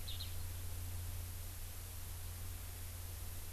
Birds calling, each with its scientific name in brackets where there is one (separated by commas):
Eurasian Skylark (Alauda arvensis)